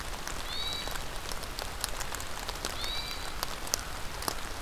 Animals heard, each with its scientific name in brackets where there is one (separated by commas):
Hermit Thrush (Catharus guttatus)